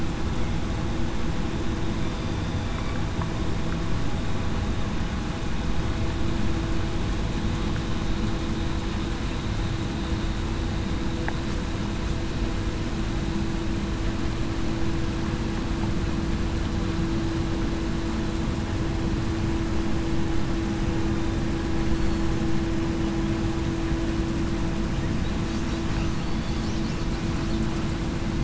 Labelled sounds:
2.0	2.4	killer whale, southern resident, 3.5 to 3.6 kHz
26.3	26.6	killer whale, southern resident, 3.4 to 3.5 kHz

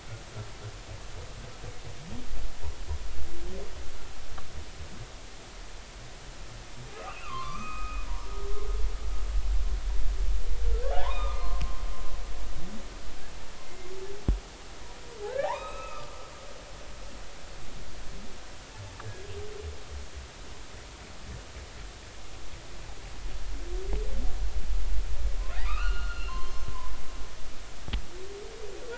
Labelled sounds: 6.8	8.0	humpback whale, 0.99 to 2.8 kHz
10.9	11.6	humpback whale, 0.80 to 4.3 kHz
13.6	13.9	humpback whale, 2.0 to 2.1 kHz
15.3	16.1	humpback whale, 0.80 to 4.0 kHz
19.0	19.3	humpback whale, 1.6 to 1.8 kHz
25.6	26.9	humpback whale, 0.93 to 5.3 kHz

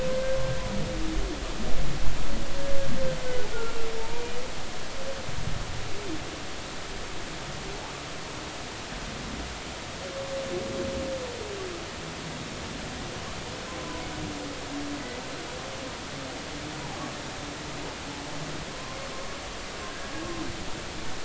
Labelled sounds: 3.5	4.2	humpback whale, 0.86 to 1.5 kHz
13.8	14.1	humpback whale, 0.93 to 1.1 kHz
19.1	19.4	humpback whale, 1.0 to 1.2 kHz

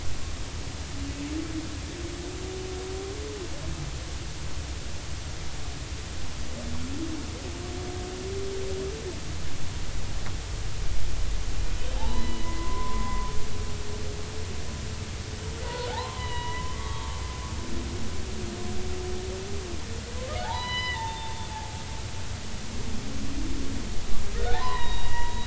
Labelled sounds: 12.0	13.3	humpback whale, 0.80 to 4.0 kHz
15.6	17.2	humpback whale, 0.80 to 4.1 kHz
20.4	21.8	humpback whale, 0.80 to 5.1 kHz
24.3	25.4	humpback whale, 0.80 to 4.2 kHz

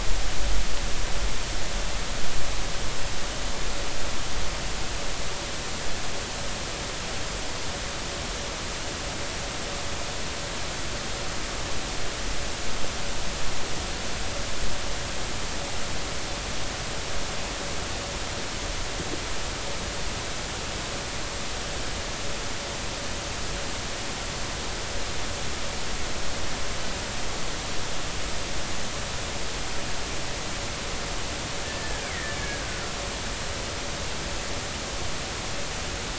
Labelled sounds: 31.6	32.4	killer whale, Bigg's (transient), 1.6 to 2.4 kHz

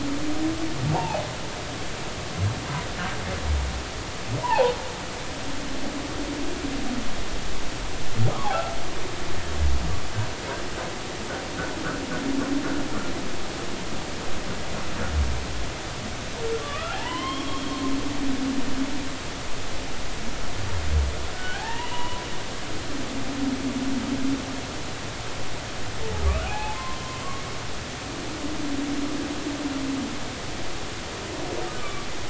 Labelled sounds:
0.9	1.2	humpback whale, 0.80 to 1.0 kHz
4.4	4.8	humpback whale, 0.80 to 1.1 kHz
16.6	17.8	humpback whale, 0.80 to 3.4 kHz
21.3	22.2	humpback whale, 0.80 to 3.0 kHz
26.4	27.0	humpback whale, 0.80 to 1.1 kHz
31.8	32.1	humpback whale, 1.1 to 1.3 kHz

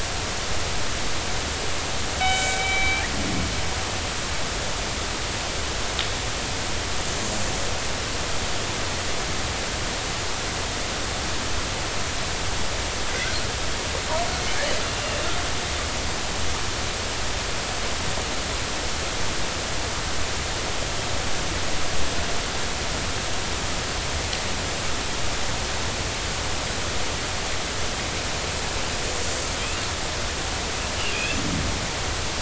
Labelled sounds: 2.2	3.1	killer whale, northern resident, G clan, 1.5 to 3.9 kHz
14.8	15.2	killer whale, northern resident, G clan, 2.7 to 2.8 kHz
29.6	29.8	killer whale, northern resident, G clan, 2.3 to 2.8 kHz
31.1	31.4	killer whale, northern resident, G clan, 2.4 to 2.7 kHz

